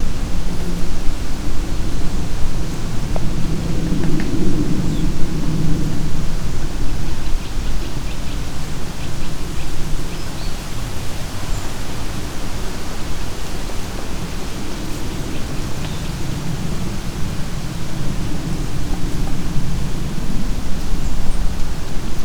Could it be rainning?
yes